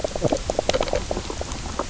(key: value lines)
label: biophony, knock croak
recorder: SoundTrap 300